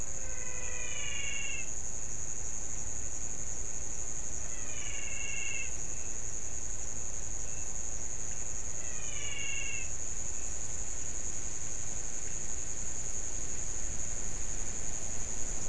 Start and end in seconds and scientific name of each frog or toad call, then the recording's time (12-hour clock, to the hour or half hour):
0.0	1.9	Physalaemus albonotatus
4.4	5.8	Physalaemus albonotatus
8.6	10.0	Physalaemus albonotatus
~7pm